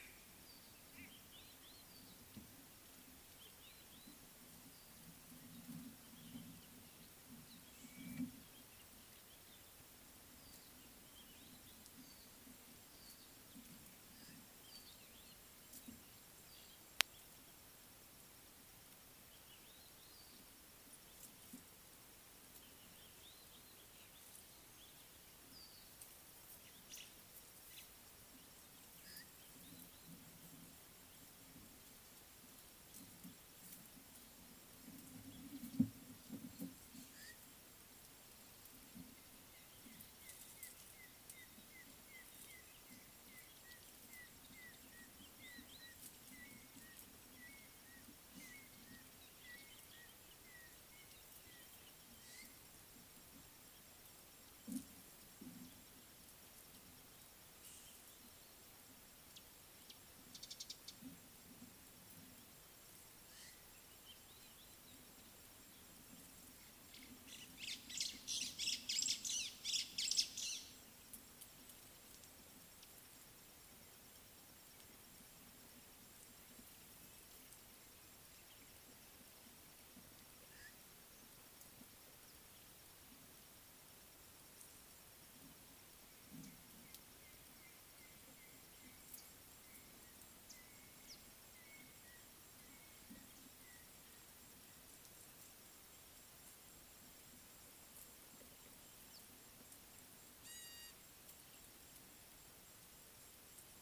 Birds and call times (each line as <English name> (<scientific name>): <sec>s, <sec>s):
Red-backed Scrub-Robin (Cercotrichas leucophrys): 1.4s, 45.3s, 64.3s
White-browed Sparrow-Weaver (Plocepasser mahali): 27.0s, 68.7s, 70.1s
African Gray Hornbill (Lophoceros nasutus): 40.7s, 44.2s, 50.5s, 91.8s
Beautiful Sunbird (Cinnyris pulchellus): 60.6s
Gray-backed Camaroptera (Camaroptera brevicaudata): 100.7s